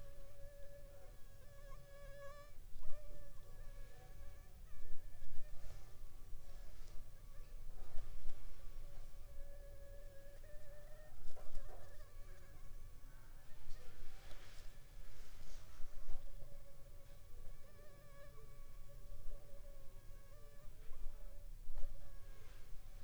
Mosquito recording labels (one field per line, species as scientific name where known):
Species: Anopheles funestus s.s.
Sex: female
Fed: unfed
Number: one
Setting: cup